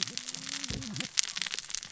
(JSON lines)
{"label": "biophony, cascading saw", "recorder": "SoundTrap 600 or HydroMoth"}